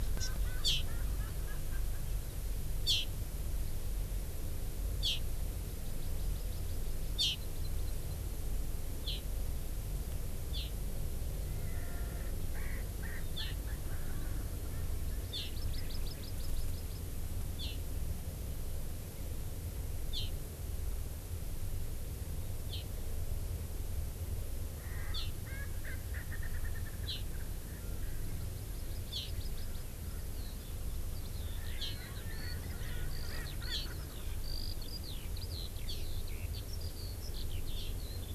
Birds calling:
Eurasian Skylark (Alauda arvensis), Erckel's Francolin (Pternistis erckelii), Hawaii Amakihi (Chlorodrepanis virens)

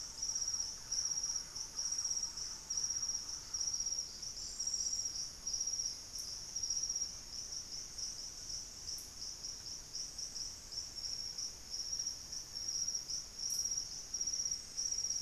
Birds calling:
Thrush-like Wren (Campylorhynchus turdinus), White-throated Toucan (Ramphastos tucanus)

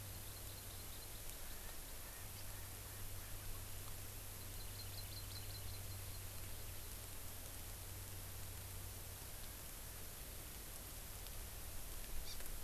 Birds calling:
Hawaii Amakihi (Chlorodrepanis virens), Erckel's Francolin (Pternistis erckelii)

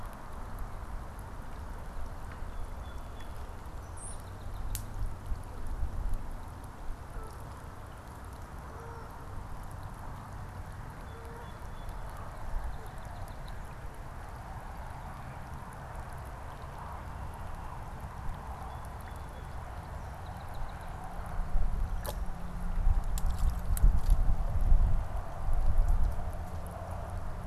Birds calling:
unidentified bird, Song Sparrow (Melospiza melodia), Canada Goose (Branta canadensis)

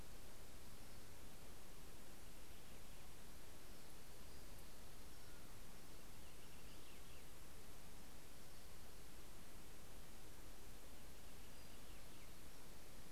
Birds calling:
Purple Finch (Haemorhous purpureus)

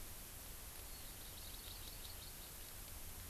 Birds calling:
Hawaii Amakihi (Chlorodrepanis virens)

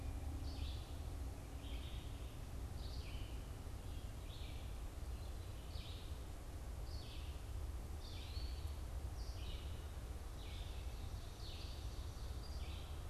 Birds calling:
Eastern Wood-Pewee (Contopus virens), Red-eyed Vireo (Vireo olivaceus)

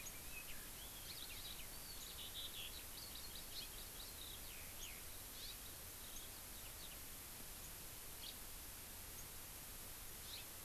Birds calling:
Eurasian Skylark (Alauda arvensis), Hawaii Amakihi (Chlorodrepanis virens), House Finch (Haemorhous mexicanus)

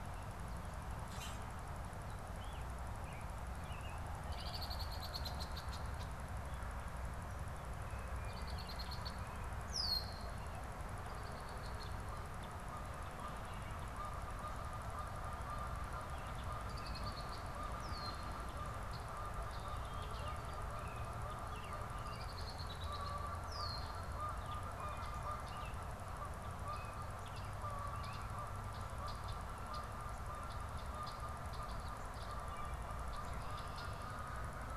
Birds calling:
Red-winged Blackbird (Agelaius phoeniceus), Canada Goose (Branta canadensis), Common Grackle (Quiscalus quiscula)

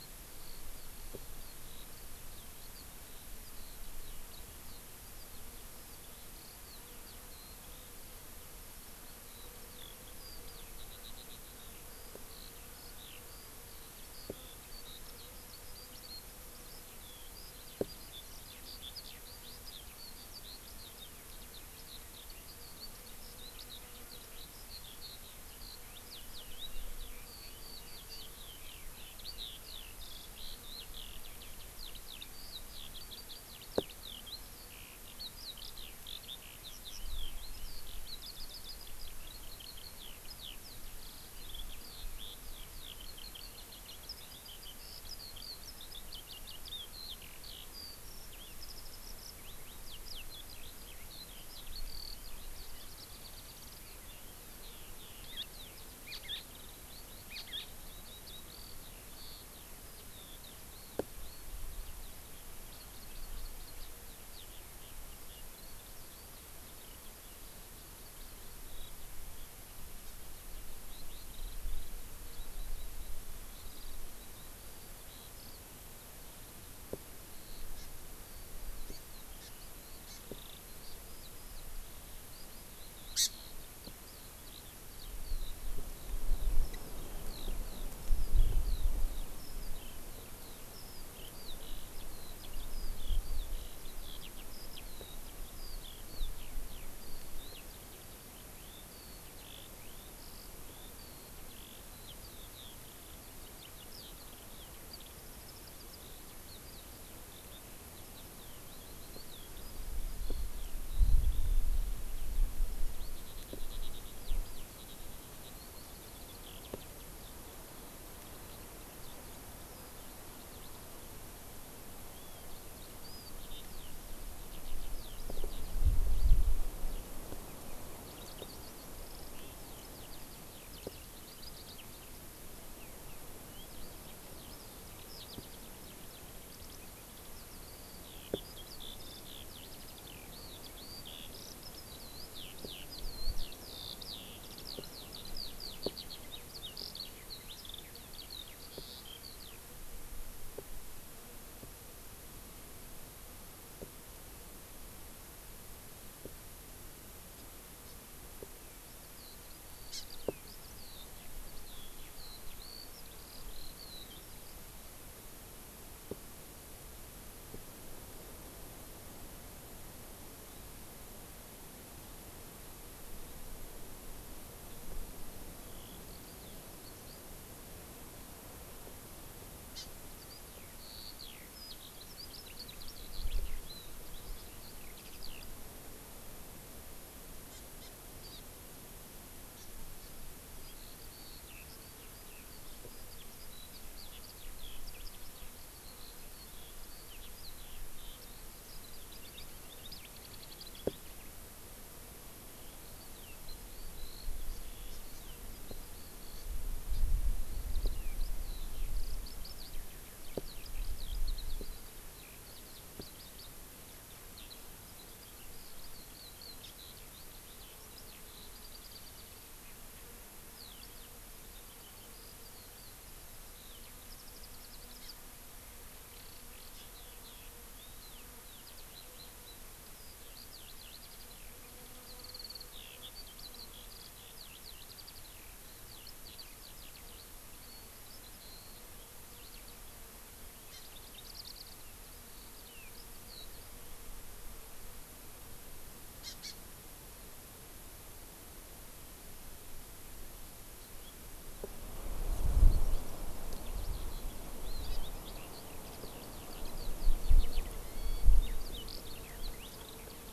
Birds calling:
Eurasian Skylark (Alauda arvensis), Hawaii Amakihi (Chlorodrepanis virens), Hawaii Elepaio (Chasiempis sandwichensis)

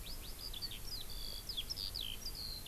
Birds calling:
Eurasian Skylark (Alauda arvensis)

